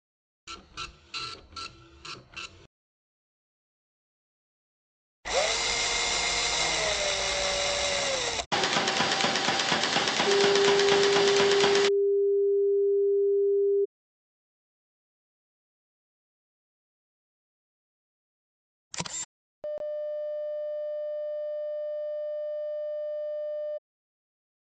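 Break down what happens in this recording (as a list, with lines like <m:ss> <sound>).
0:00 the sound of a printer
0:05 a drill can be heard
0:09 there is an engine
0:10 a sine wave is heard
0:19 the sound of a single-lens reflex camera
0:20 a busy signal can be heard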